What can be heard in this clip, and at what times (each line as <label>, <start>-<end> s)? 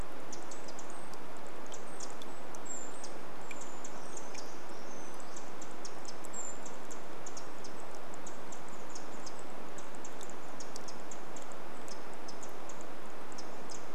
Brown Creeper call, 0-8 s
Pacific Wren call, 0-14 s
Brown Creeper song, 4-6 s
Chestnut-backed Chickadee call, 8-10 s